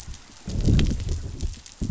{"label": "biophony, growl", "recorder": "SoundTrap 500"}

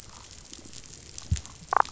{"label": "biophony, damselfish", "recorder": "SoundTrap 500"}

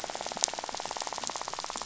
{"label": "biophony, rattle", "recorder": "SoundTrap 500"}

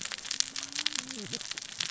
{"label": "biophony, cascading saw", "recorder": "SoundTrap 600 or HydroMoth"}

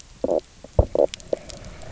{"label": "biophony, knock croak", "recorder": "SoundTrap 300"}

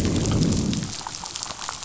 {"label": "biophony, growl", "recorder": "SoundTrap 500"}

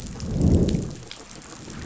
{"label": "biophony, growl", "recorder": "SoundTrap 500"}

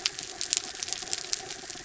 {"label": "anthrophony, mechanical", "recorder": "SoundTrap 300"}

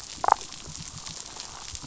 {"label": "biophony, damselfish", "recorder": "SoundTrap 500"}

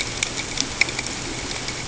{"label": "ambient", "recorder": "HydroMoth"}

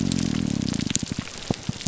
{"label": "biophony, grouper groan", "recorder": "SoundTrap 300"}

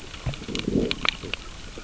{"label": "biophony, growl", "recorder": "SoundTrap 600 or HydroMoth"}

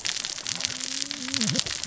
{"label": "biophony, cascading saw", "recorder": "SoundTrap 600 or HydroMoth"}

